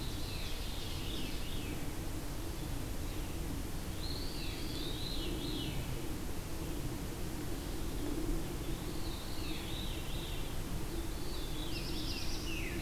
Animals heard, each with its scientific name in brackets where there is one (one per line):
Veery (Catharus fuscescens)
Eastern Wood-Pewee (Contopus virens)
Black-throated Blue Warbler (Setophaga caerulescens)
Ovenbird (Seiurus aurocapilla)